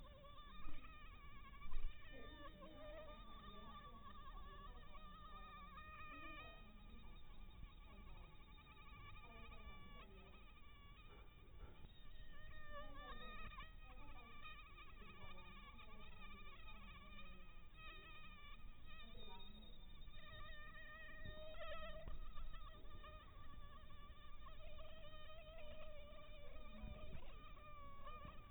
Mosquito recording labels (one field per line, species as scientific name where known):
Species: mosquito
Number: one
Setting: cup